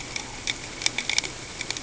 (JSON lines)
{"label": "ambient", "recorder": "HydroMoth"}